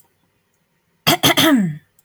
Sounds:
Throat clearing